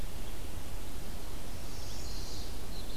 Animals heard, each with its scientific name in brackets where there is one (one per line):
Chestnut-sided Warbler (Setophaga pensylvanica)